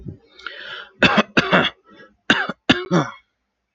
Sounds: Cough